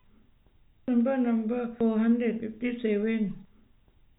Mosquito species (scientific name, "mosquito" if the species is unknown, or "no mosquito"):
no mosquito